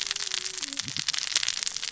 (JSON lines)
{"label": "biophony, cascading saw", "recorder": "SoundTrap 600 or HydroMoth"}